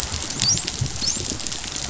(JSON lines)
{"label": "biophony, dolphin", "recorder": "SoundTrap 500"}